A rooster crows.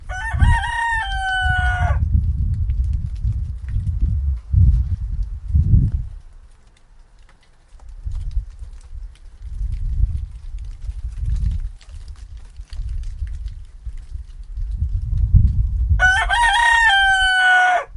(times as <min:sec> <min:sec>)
0:00.0 0:02.1, 0:16.0 0:18.0